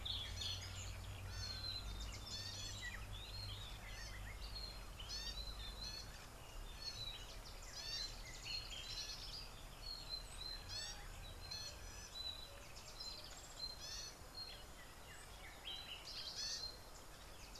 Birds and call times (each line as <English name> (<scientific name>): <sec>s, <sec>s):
Gray-backed Camaroptera (Camaroptera brevicaudata): 5.3s, 10.9s